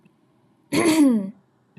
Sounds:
Throat clearing